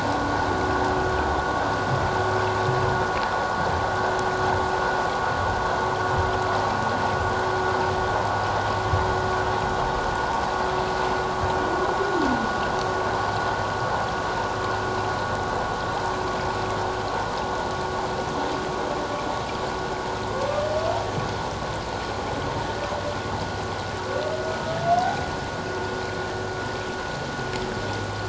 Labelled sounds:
24.9	25.2	humpback whale, 0.78 to 0.88 kHz

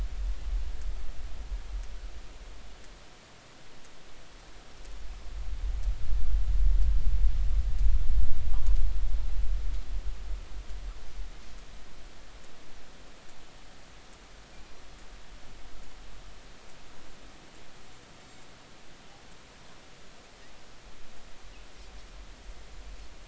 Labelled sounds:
18.2	18.5	Pacific white-sided dolphin, 7.2 to 7.5 kHz

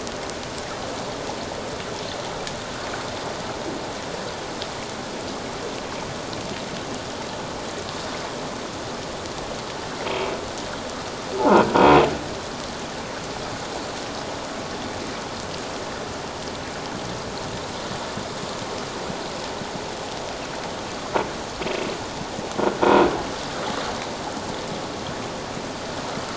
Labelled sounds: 10.1	10.3	croaking sound likely from a nearby submerged object, 2.2 to 2.4 kHz
11.4	11.6	croaking sound likely from a nearby submerged object, 0.81 to 1.1 kHz

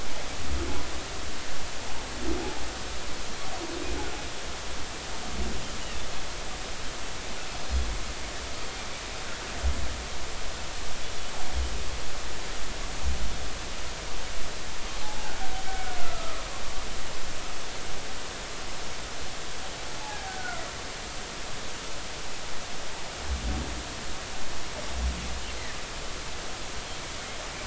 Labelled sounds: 15.0	16.5	humpback whale, 0.80 to 1.6 kHz
20.0	20.6	humpback whale, 0.80 to 1.6 kHz

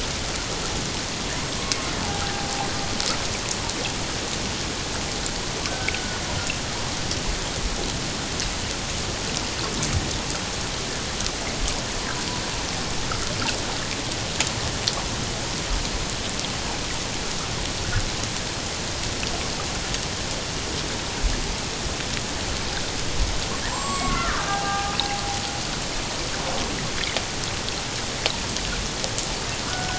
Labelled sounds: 2.0	2.4	killer whale, Bigg's (transient), 0.78 to 1.7 kHz
5.7	6.2	killer whale, Bigg's (transient), 1.4 to 1.6 kHz
23.7	25.0	killer whale, Bigg's (transient), 0.78 to 7.7 kHz
29.7	29.9	killer whale, Bigg's (transient), 1.3 to 1.6 kHz

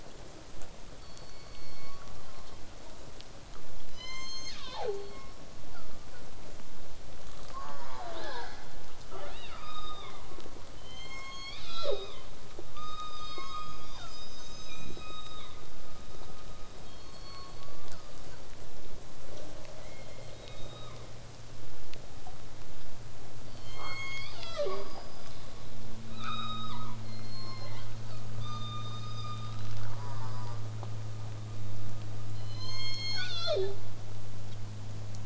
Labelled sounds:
3.9	5.2	killer whale, southern resident, call S01, 0.22 to 8.0 kHz
7.5	8.1	killer whale, southern resident, J pod, call S04, 0.35 to 2.1 kHz
8.1	8.6	killer whale, southern resident, 0.27 to 5.7 kHz
9.5	10.2	killer whale, southern resident, call S16, 0.84 to 5.2 kHz
10.8	12.3	killer whale, southern resident, call S01, 0.22 to 8.0 kHz
12.7	15.6	killer whale, southern resident, 0.44 to 8.0 kHz
16.8	18.4	killer whale, southern resident, call S01, 0.84 to 5.4 kHz
23.5	25.1	killer whale, southern resident, call S01, 0.27 to 8.0 kHz
26.2	27.0	killer whale, southern resident, call S17, 0.84 to 7.8 kHz
27.0	27.8	killer whale, southern resident, call S16, 0.84 to 5.8 kHz
27.7	28.4	killer whale, southern resident, 0.40 to 4.8 kHz
28.4	29.8	killer whale, southern resident, call S17, 0.98 to 7.5 kHz
29.9	30.6	killer whale, southern resident, J pod, call S04, 0.62 to 5.3 kHz
32.3	33.9	killer whale, southern resident, call S01, 0.13 to 8.0 kHz

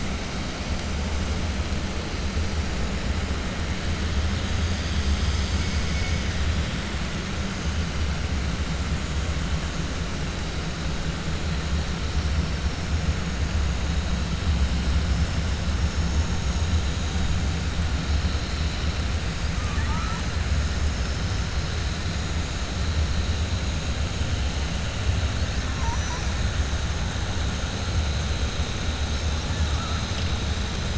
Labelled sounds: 25.7	26.3	killer whale, 4.8 to 6.1 kHz

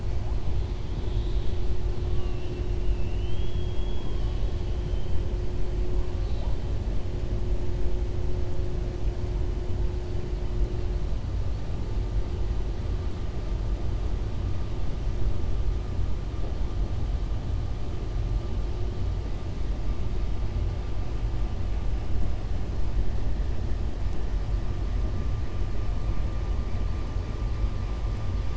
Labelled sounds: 2.8	4.5	killer whale, southern resident, 2.5 to 5.4 kHz
6.1	6.6	killer whale, southern resident, 2.8 to 4.7 kHz

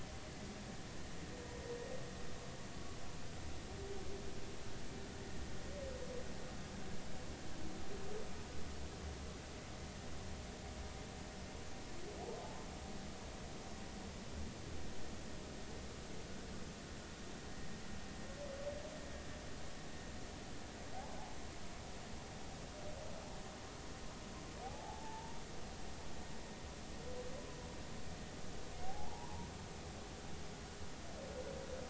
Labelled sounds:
24.6	25.4	humpback whale, 0.80 to 0.99 kHz
28.8	29.5	humpback whale, 0.80 to 1.1 kHz

